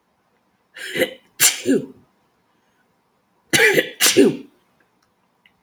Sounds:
Sneeze